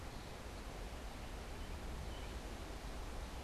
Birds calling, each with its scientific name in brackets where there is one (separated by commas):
American Robin (Turdus migratorius)